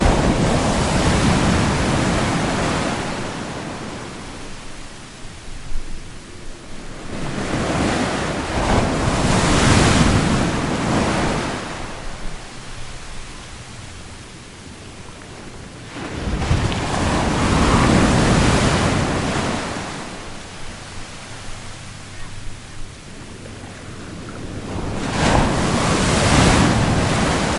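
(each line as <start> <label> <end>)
0.0 Waves crash loudly on the beach. 3.6
3.4 Foam hisses repeatedly on the beach at medium volume. 7.2
7.0 Waves flow loudly onto the beach. 8.5
8.4 Waves crash loudly on the beach. 12.0
11.8 Foam hisses repeatedly on the beach at medium volume. 16.0
15.9 Waves flow loudly onto the beach. 16.9
16.9 Waves crash loudly on the beach. 19.8
19.8 Foam hisses repeatedly on the beach at medium volume. 24.8
24.6 Waves flow loudly onto the beach. 25.1
25.1 Waves crash loudly on the beach. 27.6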